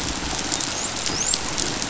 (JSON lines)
{"label": "biophony, dolphin", "recorder": "SoundTrap 500"}